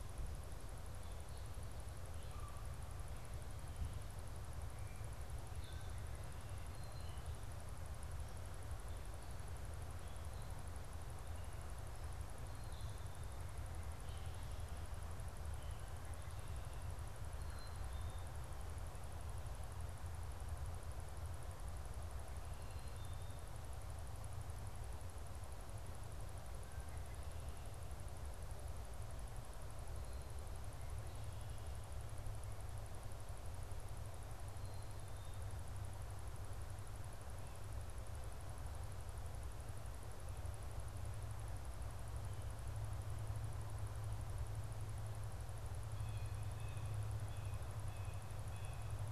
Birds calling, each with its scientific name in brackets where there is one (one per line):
Black-capped Chickadee (Poecile atricapillus)
Blue Jay (Cyanocitta cristata)